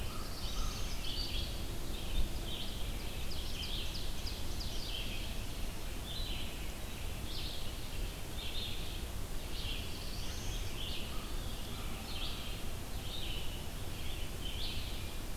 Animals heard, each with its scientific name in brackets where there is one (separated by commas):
Red-eyed Vireo (Vireo olivaceus), Ovenbird (Seiurus aurocapilla), Black-throated Blue Warbler (Setophaga caerulescens), American Crow (Corvus brachyrhynchos)